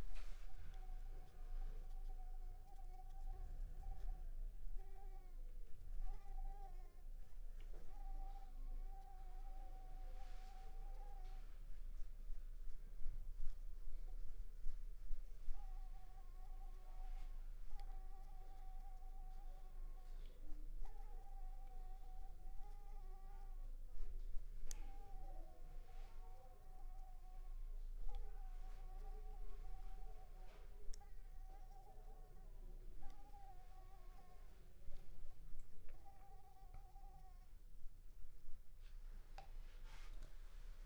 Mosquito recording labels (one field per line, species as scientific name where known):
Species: Anopheles coustani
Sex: female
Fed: unfed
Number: one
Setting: cup